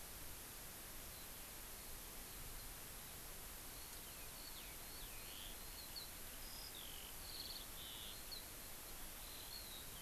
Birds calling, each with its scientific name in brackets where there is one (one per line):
Eurasian Skylark (Alauda arvensis)